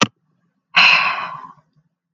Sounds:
Sigh